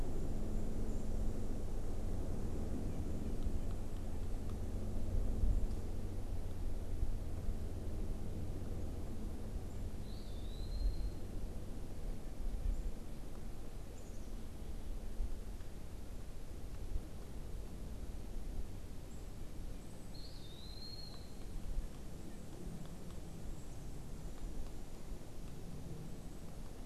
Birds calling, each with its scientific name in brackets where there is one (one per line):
Eastern Wood-Pewee (Contopus virens)